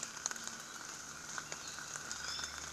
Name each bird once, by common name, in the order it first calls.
Iiwi